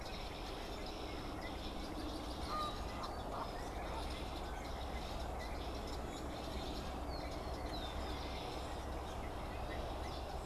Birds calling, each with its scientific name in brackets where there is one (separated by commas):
Canada Goose (Branta canadensis), Red-winged Blackbird (Agelaius phoeniceus)